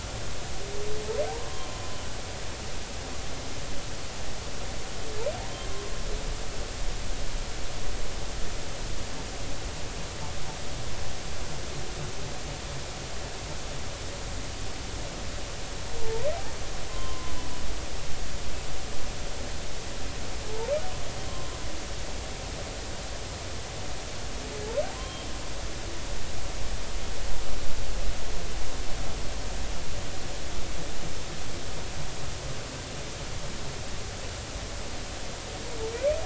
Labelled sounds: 1.4	1.7	humpback whale, 0.99 to 1.1 kHz
5.5	5.9	humpback whale, 0.99 to 1.2 kHz
16.0	16.3	humpback whale, 0.83 to 1.1 kHz
16.9	17.3	humpback whale, 0.99 to 1.1 kHz
24.9	25.3	humpback whale, 0.96 to 3.3 kHz
35.9	36.2	humpback whale, 1.9 to 2.6 kHz

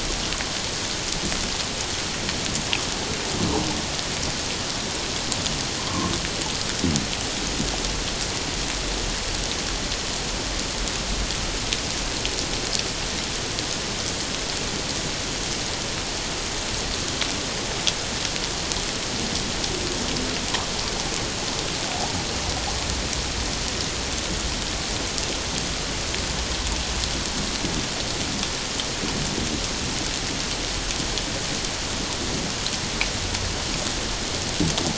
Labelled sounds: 5.8	6.1	humpback whale, 0.94 to 1.2 kHz

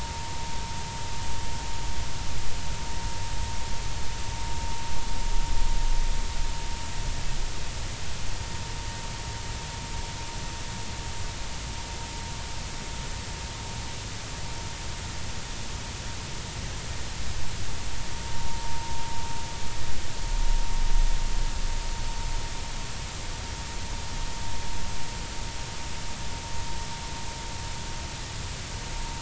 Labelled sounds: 18.5	18.8	vessel noise, 0.90 to 0.96 kHz

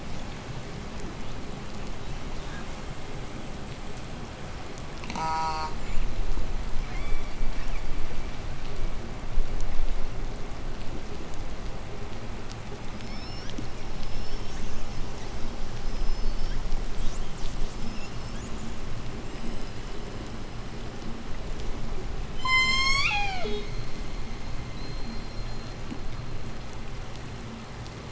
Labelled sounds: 4.7	5.9	killer whale, southern resident, J pod, call S04, 0.22 to 8.0 kHz
6.8	9.5	killer whale, southern resident, J pod, 0.76 to 8.0 kHz
12.7	14.6	killer whale, southern resident, J pod, 1.1 to 8.0 kHz
15.7	20.3	killer whale, southern resident, J pod, 0.91 to 8.0 kHz
22.4	24.1	killer whale, southern resident, J pod, call S01, 0.09 to 8.0 kHz

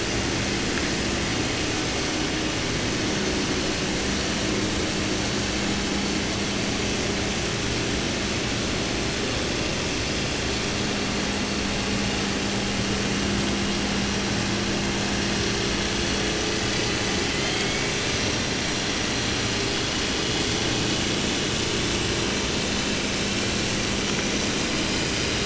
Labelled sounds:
17.1	18.2	killer whale, southern resident, J pod, call S01, 0.30 to 5.0 kHz

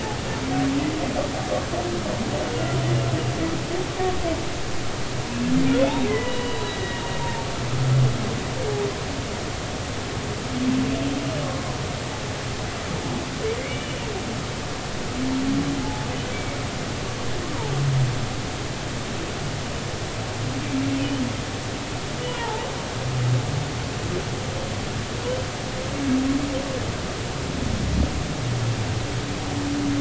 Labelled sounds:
2.7	3.1	humpback whale, 2.8 to 3.1 kHz
5.7	7.5	humpback whale, 0.86 to 4.0 kHz
13.6	14.1	humpback whale, 2.0 to 3.0 kHz
15.8	16.6	humpback whale, 0.80 to 2.4 kHz
22.2	22.6	humpback whale, 0.80 to 3.0 kHz

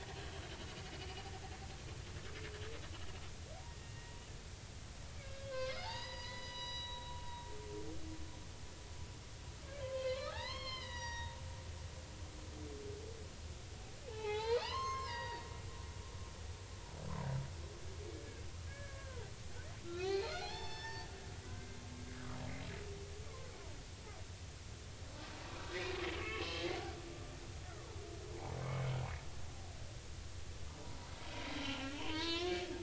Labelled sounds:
0.2	0.4	humpback whale, 3.0 to 3.3 kHz
3.7	4.2	humpback whale, 1.8 to 2.8 kHz
5.2	7.1	humpback whale, 0.80 to 5.9 kHz
9.8	11.4	humpback whale, 0.80 to 5.9 kHz
14.0	15.5	humpback whale, 0.80 to 6.4 kHz
18.1	21.1	humpback whale, 0.80 to 5.5 kHz
22.1	22.4	humpback whale, 1.1 to 1.7 kHz
26.2	26.6	humpback whale, 0.99 to 2.7 kHz
28.6	28.9	humpback whale, 2.1 to 2.3 kHz
31.4	32.6	humpback whale, 0.83 to 4.5 kHz

